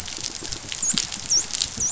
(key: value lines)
label: biophony, dolphin
recorder: SoundTrap 500